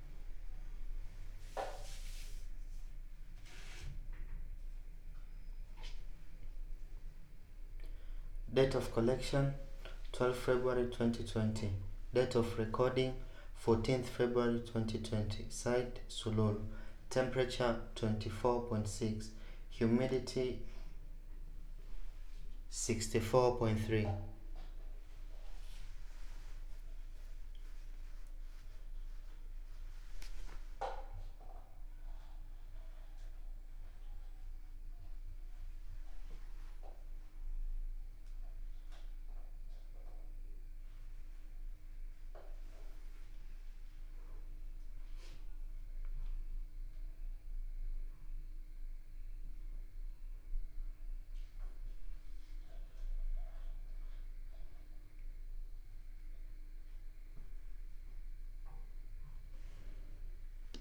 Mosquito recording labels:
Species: no mosquito; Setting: cup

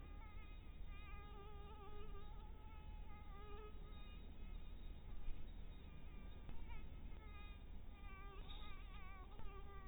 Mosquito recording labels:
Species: mosquito; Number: one; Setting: cup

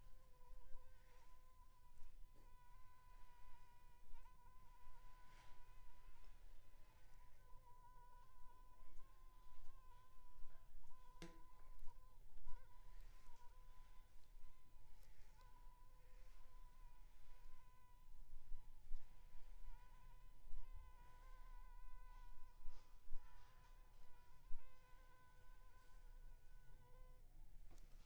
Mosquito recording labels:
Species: Anopheles funestus s.s.; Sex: female; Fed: unfed; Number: one; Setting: cup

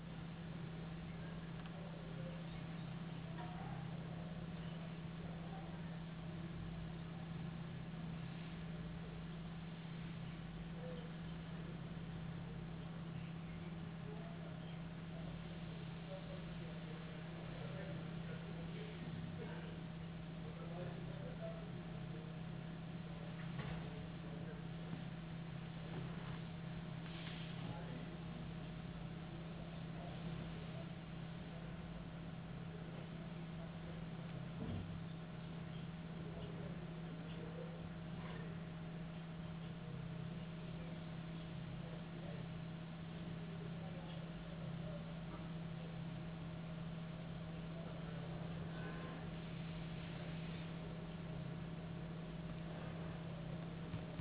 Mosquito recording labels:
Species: no mosquito; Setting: insect culture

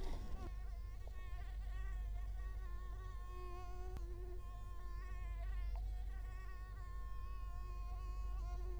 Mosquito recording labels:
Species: Culex quinquefasciatus; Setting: cup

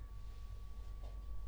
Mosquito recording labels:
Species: no mosquito; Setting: cup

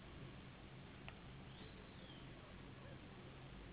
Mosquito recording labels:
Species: Anopheles gambiae s.s.; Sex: female; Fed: unfed; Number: one; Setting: insect culture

